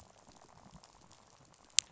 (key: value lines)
label: biophony, rattle
recorder: SoundTrap 500